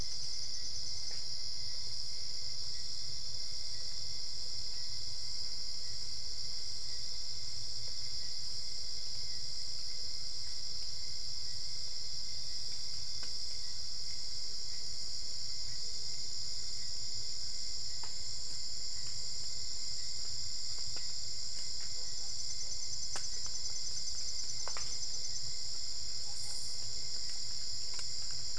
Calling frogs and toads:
none
1:30am

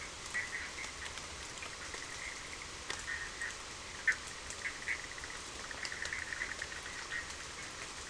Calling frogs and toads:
Boana bischoffi (Hylidae)
9:30pm

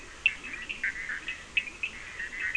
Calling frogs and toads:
Boana bischoffi (Hylidae), Leptodactylus latrans (Leptodactylidae), Sphaenorhynchus surdus (Hylidae)
3:00am

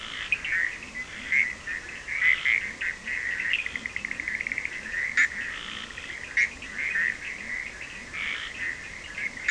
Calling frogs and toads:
Boana bischoffi (Hylidae), Sphaenorhynchus surdus (Hylidae)
1:30am

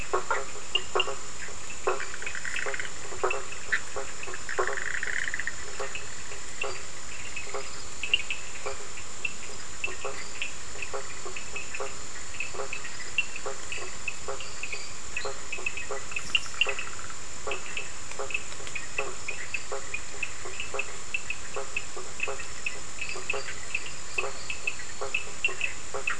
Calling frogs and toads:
Boana bischoffi (Hylidae), Boana faber (Hylidae), Sphaenorhynchus surdus (Hylidae), Elachistocleis bicolor (Microhylidae), Dendropsophus minutus (Hylidae)
11:15pm

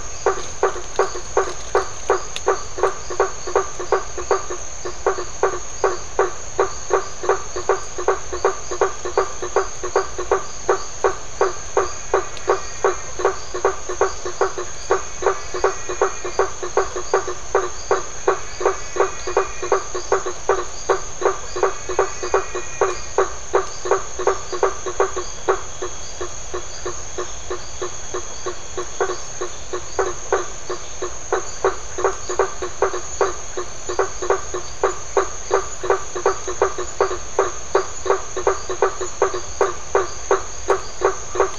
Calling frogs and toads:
Adenomera marmorata (Leptodactylidae), Boana faber (Hylidae)
7:30pm

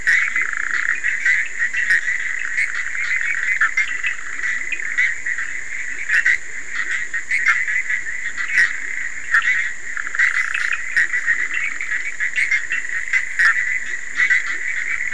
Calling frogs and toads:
Boana bischoffi (Hylidae), Leptodactylus latrans (Leptodactylidae), Sphaenorhynchus surdus (Hylidae)
1:30am

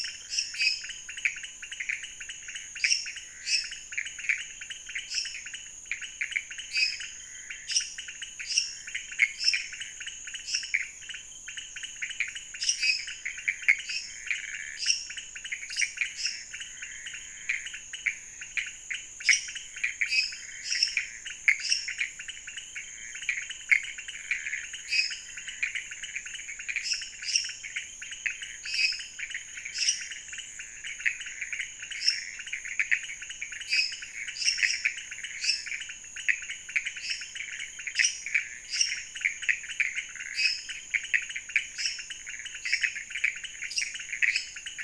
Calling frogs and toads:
Dendropsophus minutus (Hylidae), Leptodactylus podicipinus (Leptodactylidae), Pithecopus azureus (Hylidae)
12:00am

